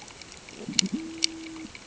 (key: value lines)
label: ambient
recorder: HydroMoth